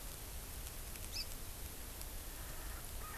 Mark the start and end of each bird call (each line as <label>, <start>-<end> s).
Hawaii Amakihi (Chlorodrepanis virens), 1.1-1.2 s
Erckel's Francolin (Pternistis erckelii), 2.2-3.2 s